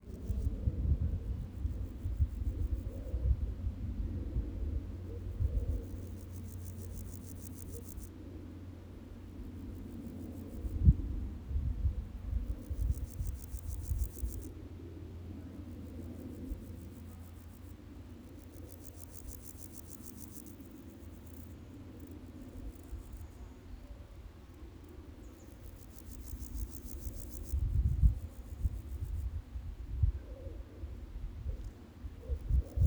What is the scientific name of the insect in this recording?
Pseudochorthippus parallelus